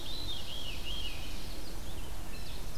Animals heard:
Red-eyed Vireo (Vireo olivaceus)
Ovenbird (Seiurus aurocapilla)
Veery (Catharus fuscescens)

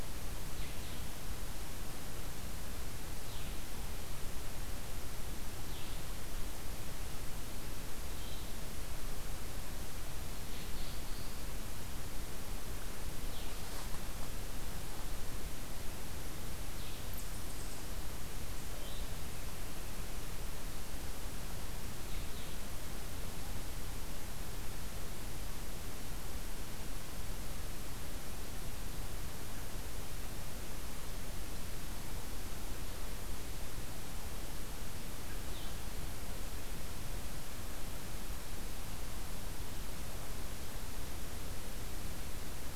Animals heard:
Blue-headed Vireo (Vireo solitarius)

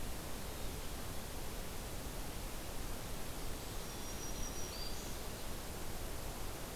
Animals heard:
Black-throated Green Warbler (Setophaga virens)

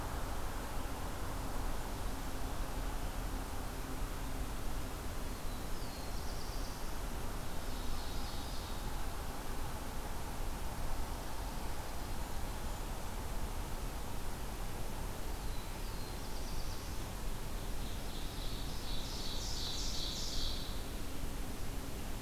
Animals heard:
Ovenbird (Seiurus aurocapilla)
Black-throated Blue Warbler (Setophaga caerulescens)

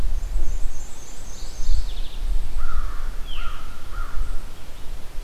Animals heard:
American Crow (Corvus brachyrhynchos)
Mourning Warbler (Geothlypis philadelphia)
Veery (Catharus fuscescens)
Black-and-white Warbler (Mniotilta varia)

